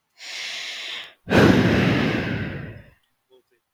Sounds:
Sigh